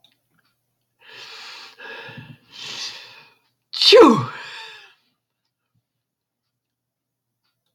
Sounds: Sneeze